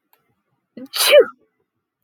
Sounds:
Sneeze